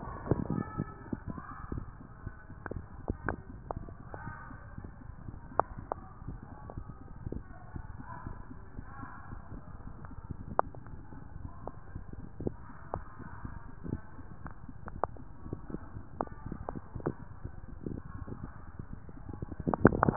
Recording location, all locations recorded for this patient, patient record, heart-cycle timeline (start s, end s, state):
mitral valve (MV)
aortic valve (AV)+pulmonary valve (PV)+tricuspid valve (TV)+mitral valve (MV)
#Age: nan
#Sex: Female
#Height: nan
#Weight: nan
#Pregnancy status: True
#Murmur: Absent
#Murmur locations: nan
#Most audible location: nan
#Systolic murmur timing: nan
#Systolic murmur shape: nan
#Systolic murmur grading: nan
#Systolic murmur pitch: nan
#Systolic murmur quality: nan
#Diastolic murmur timing: nan
#Diastolic murmur shape: nan
#Diastolic murmur grading: nan
#Diastolic murmur pitch: nan
#Diastolic murmur quality: nan
#Outcome: Normal
#Campaign: 2015 screening campaign
0.00	10.74	unannotated
10.74	10.92	diastole
10.92	11.02	S1
11.02	11.12	systole
11.12	11.18	S2
11.18	11.40	diastole
11.40	11.52	S1
11.52	11.60	systole
11.60	11.72	S2
11.72	11.92	diastole
11.92	12.06	S1
12.06	12.14	systole
12.14	12.24	S2
12.24	12.40	diastole
12.40	12.54	S1
12.54	12.64	systole
12.64	12.70	S2
12.70	12.94	diastole
12.94	13.06	S1
13.06	13.12	systole
13.12	13.20	S2
13.20	13.35	diastole
13.35	13.49	S1
13.49	13.57	systole
13.57	13.68	S2
13.68	13.86	diastole
13.86	14.02	S1
14.02	14.14	systole
14.14	14.26	S2
14.26	14.41	diastole
14.41	14.54	S1
14.54	14.62	systole
14.62	14.72	S2
14.72	14.88	diastole
14.88	15.04	S1
15.04	15.14	systole
15.14	15.26	S2
15.26	15.50	diastole
15.50	15.59	S1
15.59	15.71	systole
15.71	15.78	S2
15.78	15.94	diastole
15.94	16.04	S1
16.04	16.18	systole
16.18	16.26	S2
16.26	16.44	diastole
16.44	16.58	S1
16.58	16.70	systole
16.70	16.84	S2
16.84	17.02	diastole
17.02	20.16	unannotated